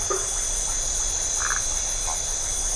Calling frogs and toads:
Phyllomedusa distincta
Atlantic Forest, Brazil, 9:30pm

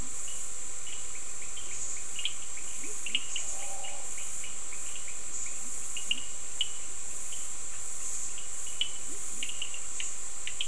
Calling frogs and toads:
Sphaenorhynchus surdus, Leptodactylus latrans
Atlantic Forest, Brazil, 7:30pm

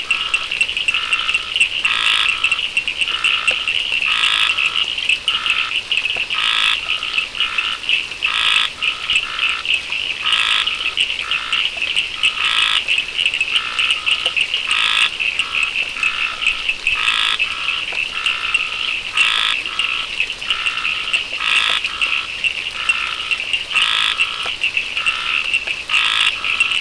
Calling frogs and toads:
Scinax perereca, Sphaenorhynchus surdus
Atlantic Forest, Brazil, 6:30pm

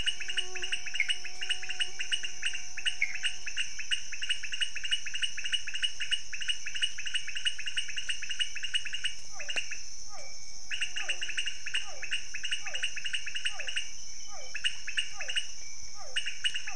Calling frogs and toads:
Leptodactylus podicipinus, Pithecopus azureus, Physalaemus cuvieri
Cerrado, Brazil, 12:00am

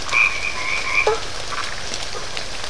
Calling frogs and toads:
Boana albomarginata, Boana faber
Atlantic Forest, Brazil, 8:30pm

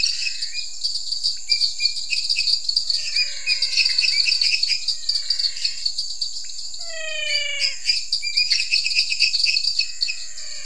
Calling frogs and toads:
Dendropsophus minutus, Pithecopus azureus, Dendropsophus nanus, Physalaemus albonotatus
Cerrado, Brazil, 8:30pm

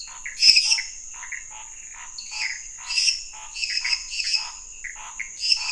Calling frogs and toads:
Dendropsophus minutus, Pithecopus azureus, Scinax fuscovarius
Cerrado, Brazil, 11:15pm

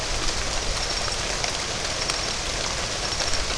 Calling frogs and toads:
none
Atlantic Forest, Brazil, 9:00pm

